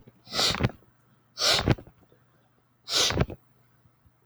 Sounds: Sniff